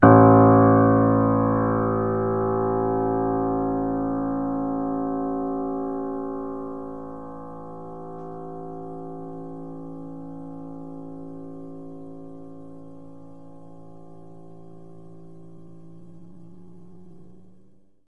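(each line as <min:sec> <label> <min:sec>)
0:00.0 A piano key is pressed. 0:18.1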